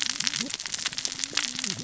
{"label": "biophony, cascading saw", "recorder": "SoundTrap 600 or HydroMoth"}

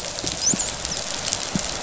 {"label": "biophony, dolphin", "recorder": "SoundTrap 500"}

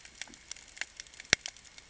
{"label": "ambient", "recorder": "HydroMoth"}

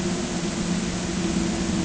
{"label": "ambient", "recorder": "HydroMoth"}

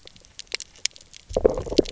{"label": "biophony, knock croak", "recorder": "SoundTrap 300"}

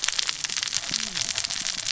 {"label": "biophony, cascading saw", "recorder": "SoundTrap 600 or HydroMoth"}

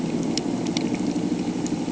{"label": "anthrophony, boat engine", "recorder": "HydroMoth"}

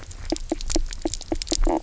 {"label": "biophony, knock croak", "recorder": "SoundTrap 300"}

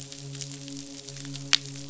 {"label": "biophony, midshipman", "recorder": "SoundTrap 500"}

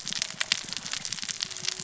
{"label": "biophony, cascading saw", "recorder": "SoundTrap 600 or HydroMoth"}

